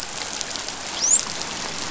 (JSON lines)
{"label": "biophony, dolphin", "recorder": "SoundTrap 500"}